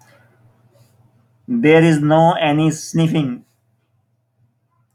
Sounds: Sniff